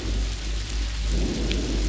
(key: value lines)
label: anthrophony, boat engine
recorder: SoundTrap 500